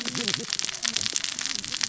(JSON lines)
{"label": "biophony, cascading saw", "recorder": "SoundTrap 600 or HydroMoth"}